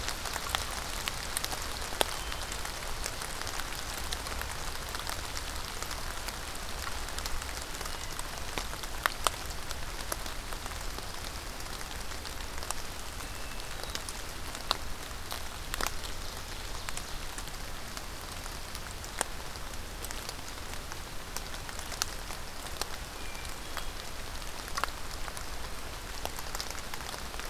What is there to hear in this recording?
Hermit Thrush